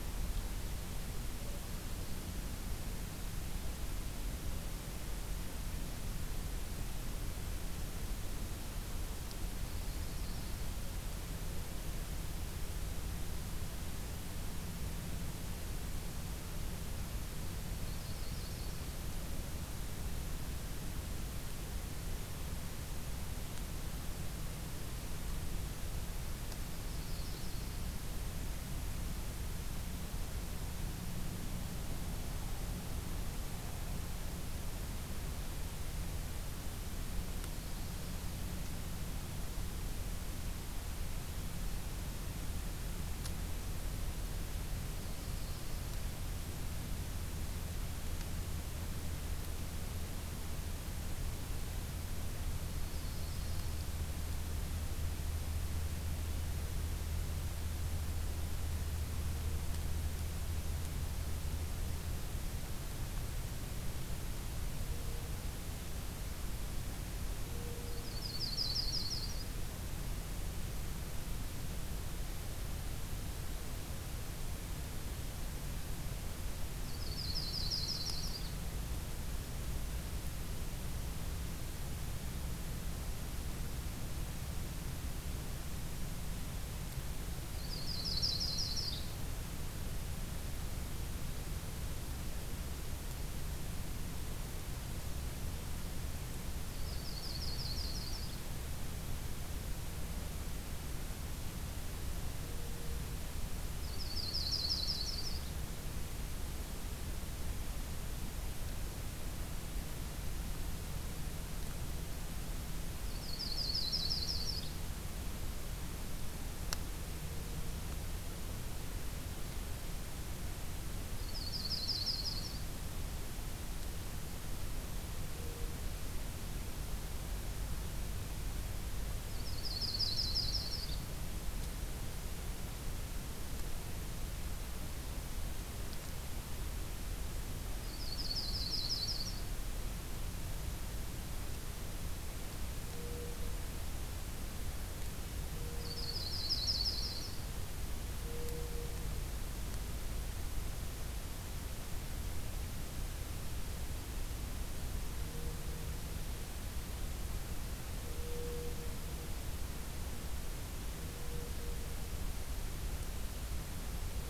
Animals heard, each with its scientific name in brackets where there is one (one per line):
Yellow-rumped Warbler (Setophaga coronata)